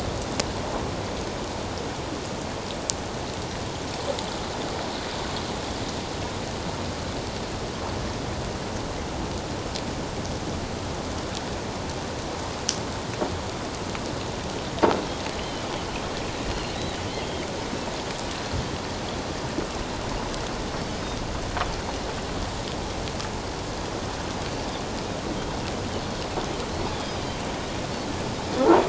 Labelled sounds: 15.3	15.7	Pacific white-sided dolphin, 2.8 to 3.2 kHz
16.5	17.4	Pacific white-sided dolphin, 3.0 to 4.3 kHz

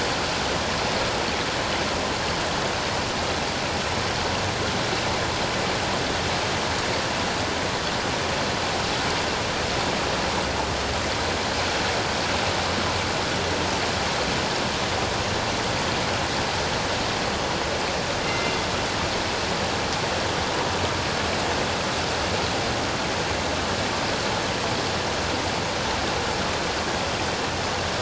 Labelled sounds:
18.2	18.5	killer whale, northern resident, G clan, 2.0 to 2.1 kHz

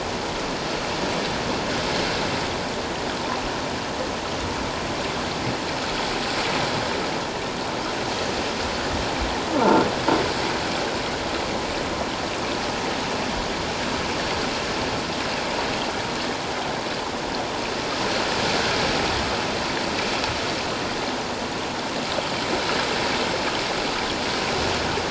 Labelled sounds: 9.6	9.9	croaking sound likely from a nearby submerged object, 1.3 to 1.5 kHz

